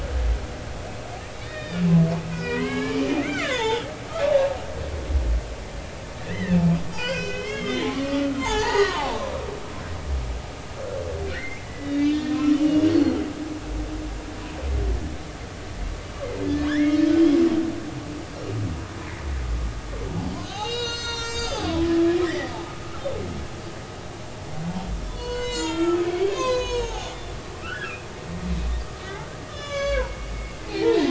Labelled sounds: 1.4	3.9	humpback whale, 0.83 to 5.4 kHz
6.2	6.6	humpback whale, 1.6 to 2.1 kHz
6.9	9.1	humpback whale, 0.80 to 6.1 kHz
11.3	13.2	humpback whale, 1.2 to 4.9 kHz
16.7	17.1	humpback whale, 1.5 to 3.4 kHz
20.4	22.5	humpback whale, 0.80 to 8.0 kHz
25.1	27.1	humpback whale, 0.80 to 8.0 kHz
27.6	28.1	humpback whale, 1.2 to 2.8 kHz
29.5	31.1	humpback whale, 0.80 to 6.8 kHz

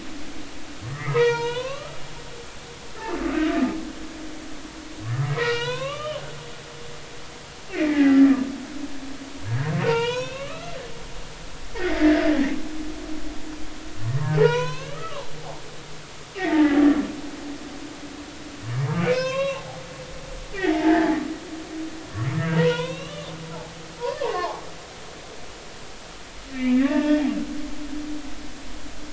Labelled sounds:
0.8	2.0	humpback whale, 0.86 to 5.3 kHz
5.2	6.2	humpback whale, 0.80 to 4.2 kHz
7.7	8.2	humpback whale, 0.80 to 2.8 kHz
9.5	10.7	humpback whale, 0.86 to 5.8 kHz
11.7	12.3	humpback whale, 1.5 to 2.1 kHz
14.4	15.3	humpback whale, 0.83 to 6.4 kHz
16.4	16.8	humpback whale, 1.6 to 2.4 kHz
19.1	19.8	humpback whale, 0.80 to 6.0 kHz
20.7	21.2	humpback whale, 0.80 to 2.0 kHz
22.5	23.3	humpback whale, 0.90 to 4.1 kHz
24.0	24.6	humpback whale, 0.80 to 2.9 kHz
26.5	27.2	humpback whale, 0.80 to 2.8 kHz

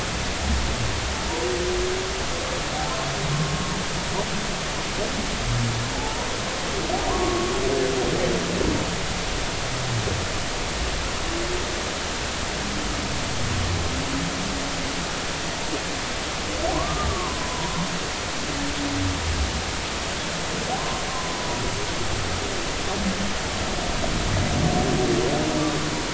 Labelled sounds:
5.9	6.3	humpback whale, 0.80 to 0.99 kHz
7.0	7.5	humpback whale, 0.93 to 1.2 kHz
16.7	17.8	humpback whale, 0.90 to 1.3 kHz
20.8	21.6	humpback whale, 0.93 to 1.1 kHz

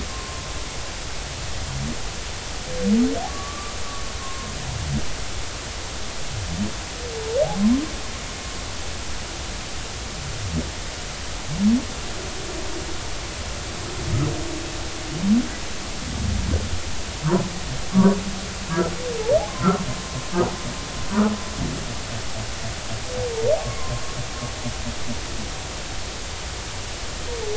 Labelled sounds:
3.3	3.7	humpback whale, 1.1 to 1.2 kHz
4.2	4.5	humpback whale, 1.0 to 1.1 kHz
17.9	18.2	humpback whale, 1.1 to 1.2 kHz
23.6	23.9	humpback whale, 0.99 to 1.2 kHz

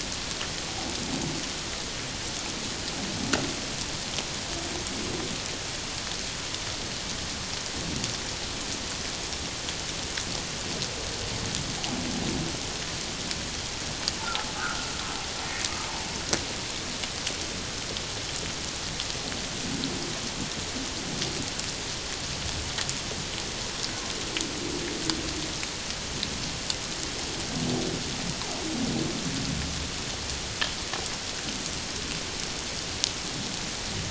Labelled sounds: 14.5	14.9	humpback whale, 1.2 to 1.7 kHz

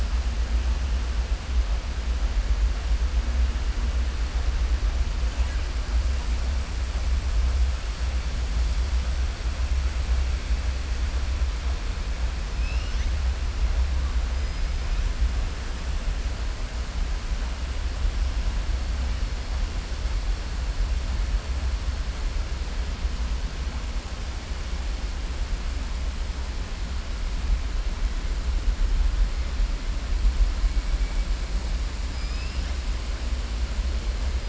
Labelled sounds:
12.5	13.1	killer whale, southern resident, 2.0 to 6.3 kHz
32.1	32.8	killer whale, southern resident, 2.1 to 5.8 kHz

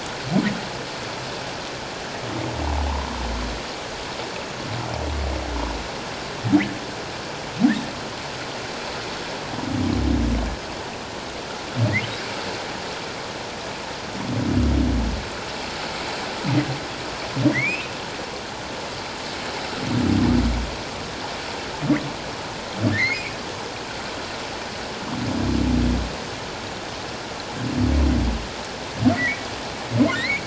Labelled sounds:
2.9	3.1	humpback whale, 0.84 to 1.1 kHz
17.5	17.9	humpback whale, 1.8 to 2.8 kHz
22.9	23.4	humpback whale, 1.6 to 2.6 kHz
29.1	30.4	humpback whale, 1.7 to 2.5 kHz

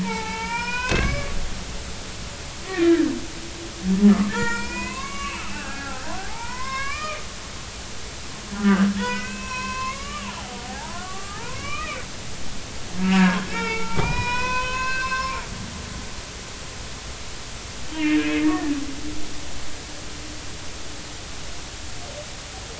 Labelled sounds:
0.0	1.4	humpback whale, 0.80 to 5.6 kHz
2.7	3.1	humpback whale, 1.5 to 2.2 kHz
4.3	7.3	humpback whale, 0.80 to 7.2 kHz
8.5	12.0	humpback whale, 0.80 to 5.8 kHz
13.0	15.4	humpback whale, 0.83 to 6.8 kHz
17.9	18.8	humpback whale, 1.7 to 2.9 kHz

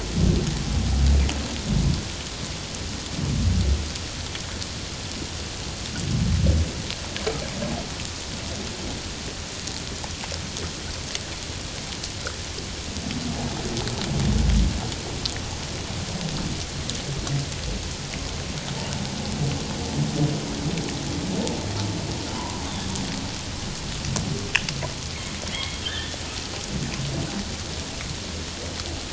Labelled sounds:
22.3	23.0	humpback whale, 0.88 to 3.7 kHz
25.5	26.2	humpback whale, 1.5 to 3.7 kHz

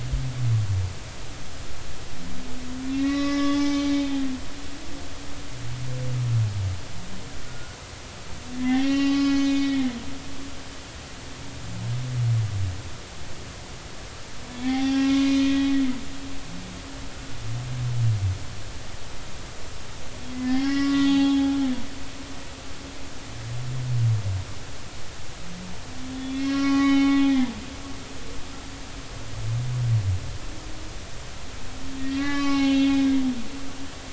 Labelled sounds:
2.9	3.9	humpback whale, 1.1 to 5.5 kHz
7.5	10.0	humpback whale, 0.80 to 6.2 kHz
14.5	15.7	humpback whale, 0.80 to 2.8 kHz
20.3	21.6	humpback whale, 0.80 to 4.4 kHz
26.1	27.2	humpback whale, 0.80 to 5.6 kHz
32.0	33.2	humpback whale, 0.80 to 5.4 kHz

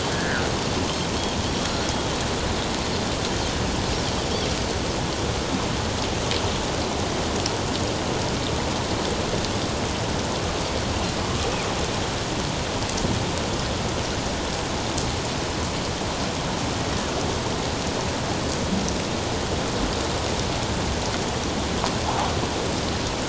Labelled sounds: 0.1	0.4	Pacific white-sided dolphin, 1.4 to 1.9 kHz

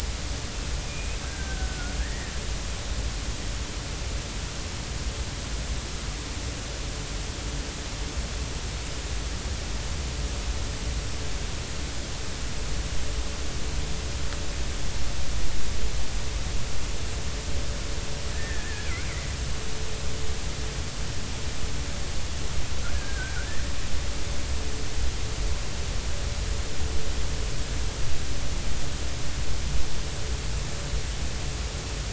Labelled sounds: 1.1	2.3	killer whale, Bigg's (transient), 1.3 to 2.0 kHz
18.3	18.9	killer whale, Bigg's (transient), 1.6 to 1.9 kHz
22.8	23.5	killer whale, Bigg's (transient), 1.3 to 1.8 kHz

